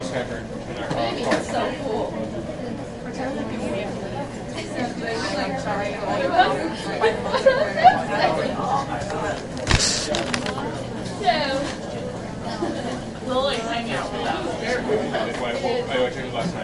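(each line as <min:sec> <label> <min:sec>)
0:00.0 People are talking indistinctly in the background. 0:16.6
0:00.9 A switch is flipped loudly. 0:01.8
0:06.2 A woman is laughing and speaking loudly. 0:08.9
0:09.6 A person flips through book pages with a hissing sound. 0:10.8
0:11.2 A woman is speaking nearby. 0:11.8
0:12.3 A woman is laughing. 0:13.1
0:13.2 People nearby are having a loud conversation. 0:16.6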